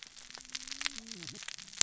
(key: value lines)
label: biophony, cascading saw
recorder: SoundTrap 600 or HydroMoth